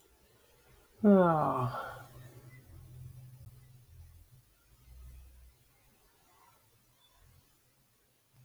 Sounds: Sigh